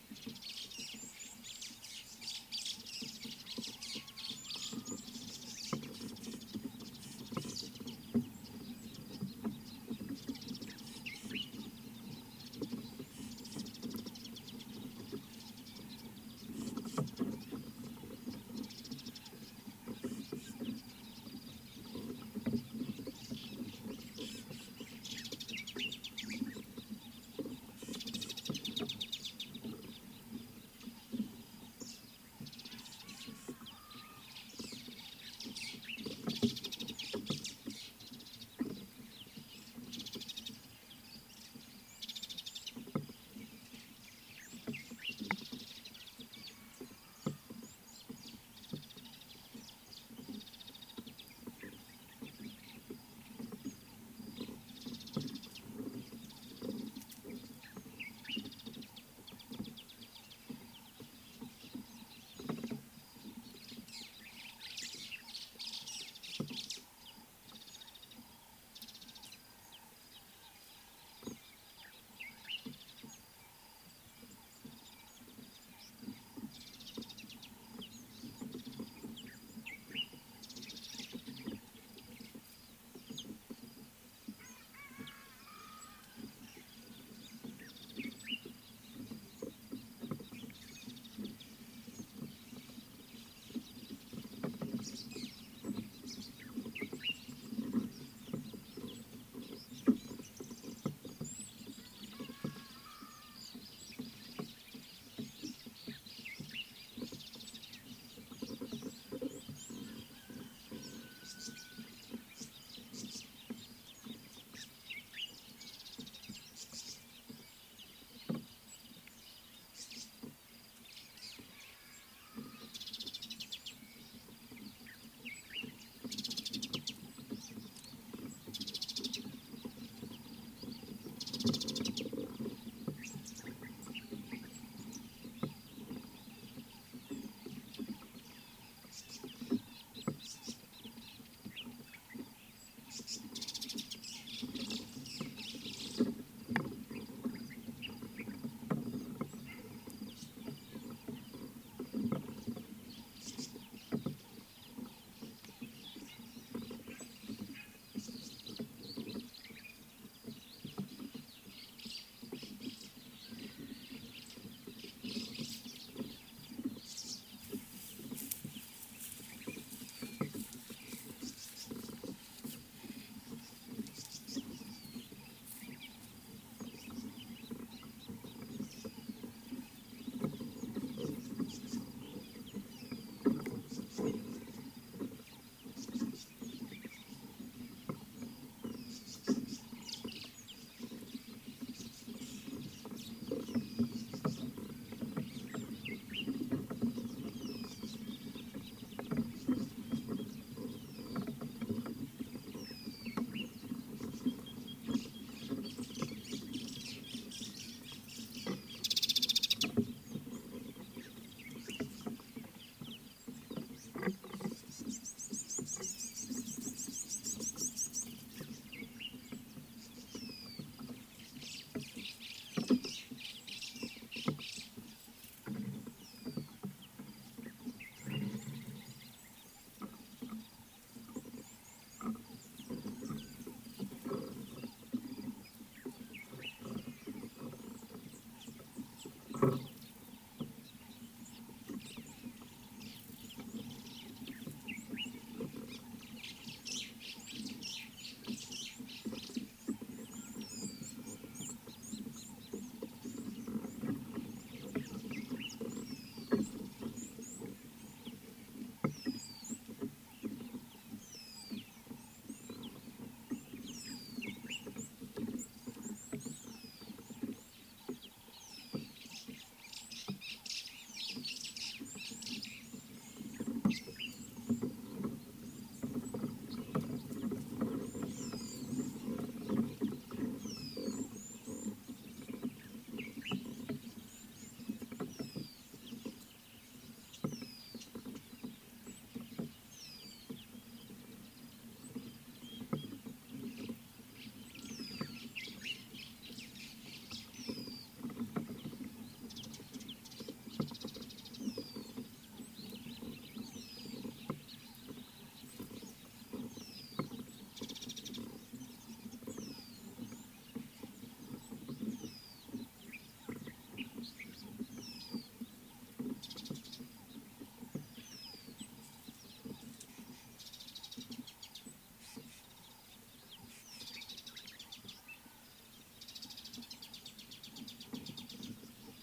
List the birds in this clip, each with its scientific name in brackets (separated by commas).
White-fronted Bee-eater (Merops bullockoides), Gabar Goshawk (Micronisus gabar), White-browed Sparrow-Weaver (Plocepasser mahali), Nubian Woodpecker (Campethera nubica), Mariqua Sunbird (Cinnyris mariquensis), Common Bulbul (Pycnonotus barbatus), Tawny-flanked Prinia (Prinia subflava), Rattling Cisticola (Cisticola chiniana), Purple Grenadier (Granatina ianthinogaster), Red-cheeked Cordonbleu (Uraeginthus bengalus), Superb Starling (Lamprotornis superbus), Scarlet-chested Sunbird (Chalcomitra senegalensis), Rufous Chatterer (Argya rubiginosa)